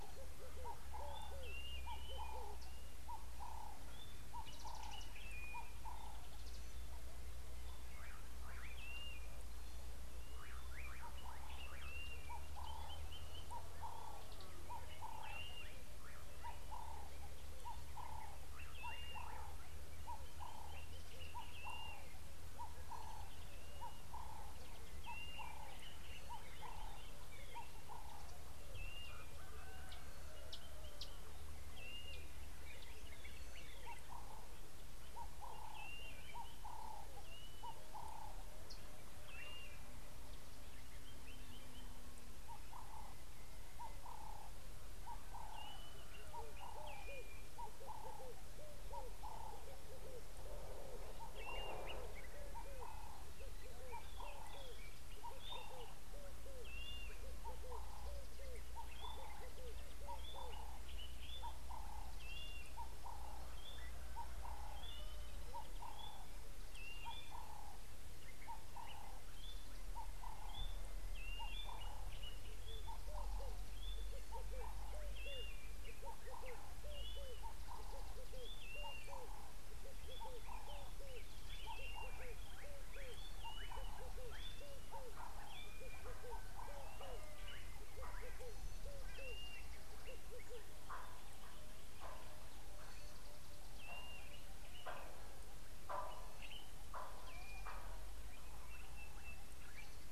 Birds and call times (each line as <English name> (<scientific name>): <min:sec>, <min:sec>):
Blue-naped Mousebird (Urocolius macrourus): 0:01.6, 0:18.9, 0:31.9, 0:36.0, 0:39.5, 0:45.8, 0:51.7, 1:07.0, 1:11.4, 1:18.9, 1:29.5, 1:34.1
Ring-necked Dove (Streptopelia capicola): 0:18.0, 0:35.6, 0:44.2, 1:01.8, 1:08.8, 1:17.6
Red-eyed Dove (Streptopelia semitorquata): 0:58.5, 1:21.1, 1:28.9
White-browed Robin-Chat (Cossypha heuglini): 1:03.7
Sulphur-breasted Bushshrike (Telophorus sulfureopectus): 1:39.1